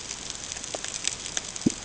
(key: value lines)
label: ambient
recorder: HydroMoth